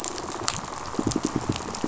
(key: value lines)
label: biophony, pulse
recorder: SoundTrap 500